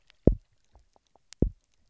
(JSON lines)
{"label": "biophony, double pulse", "recorder": "SoundTrap 300"}